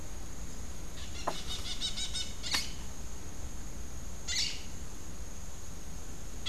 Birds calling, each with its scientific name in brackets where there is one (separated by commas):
Crimson-fronted Parakeet (Psittacara finschi)